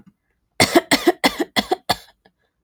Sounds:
Cough